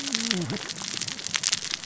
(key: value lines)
label: biophony, cascading saw
recorder: SoundTrap 600 or HydroMoth